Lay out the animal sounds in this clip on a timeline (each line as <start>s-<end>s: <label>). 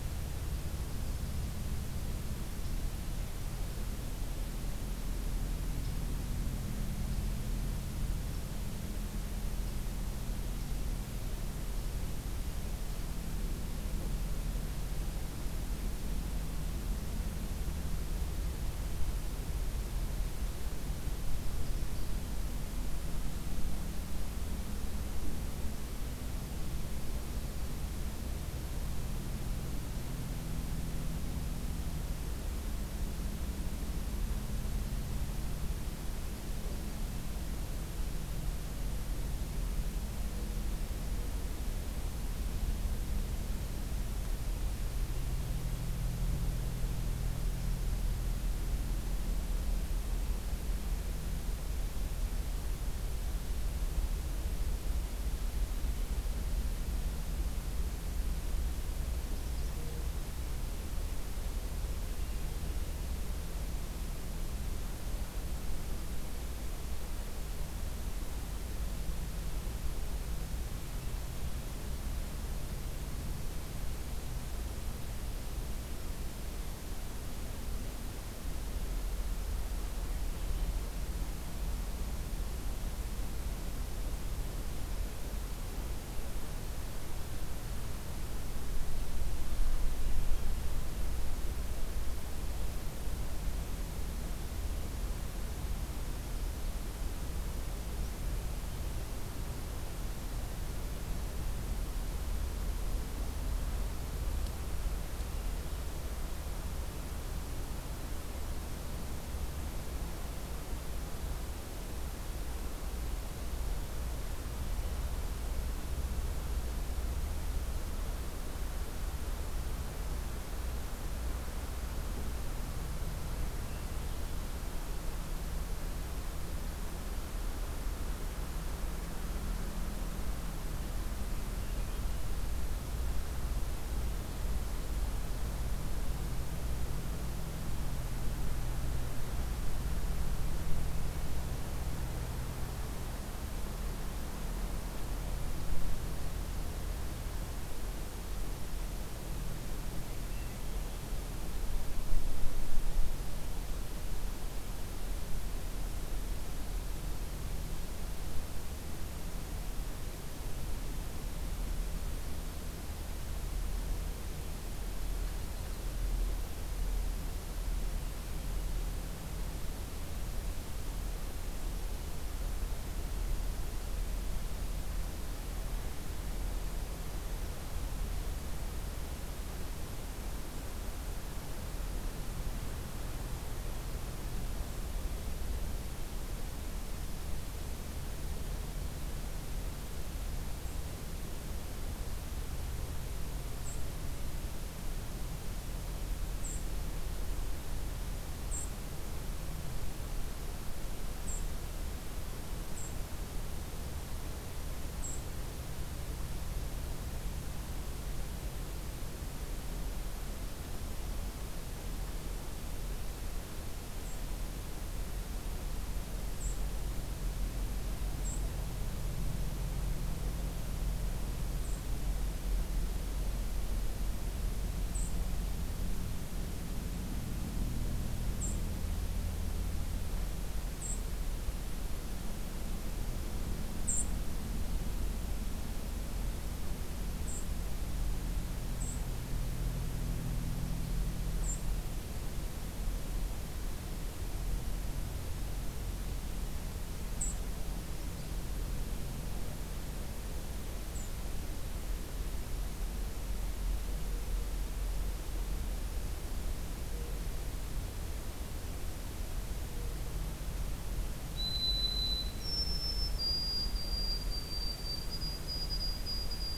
150.3s-151.1s: Hermit Thrush (Catharus guttatus)
190.6s-190.9s: White-throated Sparrow (Zonotrichia albicollis)
193.5s-193.9s: White-throated Sparrow (Zonotrichia albicollis)
196.4s-196.6s: White-throated Sparrow (Zonotrichia albicollis)
198.4s-198.8s: White-throated Sparrow (Zonotrichia albicollis)
201.1s-201.5s: White-throated Sparrow (Zonotrichia albicollis)
202.6s-203.0s: White-throated Sparrow (Zonotrichia albicollis)
204.8s-205.3s: White-throated Sparrow (Zonotrichia albicollis)
213.9s-214.2s: White-throated Sparrow (Zonotrichia albicollis)
216.3s-216.6s: White-throated Sparrow (Zonotrichia albicollis)
218.2s-218.4s: White-throated Sparrow (Zonotrichia albicollis)
221.5s-221.9s: White-throated Sparrow (Zonotrichia albicollis)
224.8s-225.2s: White-throated Sparrow (Zonotrichia albicollis)
228.3s-228.6s: White-throated Sparrow (Zonotrichia albicollis)
230.8s-231.0s: White-throated Sparrow (Zonotrichia albicollis)
233.8s-234.1s: White-throated Sparrow (Zonotrichia albicollis)
237.2s-237.5s: White-throated Sparrow (Zonotrichia albicollis)
238.7s-239.0s: White-throated Sparrow (Zonotrichia albicollis)
241.4s-241.7s: White-throated Sparrow (Zonotrichia albicollis)
247.2s-247.4s: White-throated Sparrow (Zonotrichia albicollis)
250.9s-251.1s: White-throated Sparrow (Zonotrichia albicollis)
261.3s-266.6s: White-throated Sparrow (Zonotrichia albicollis)